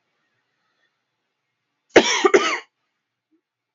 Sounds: Cough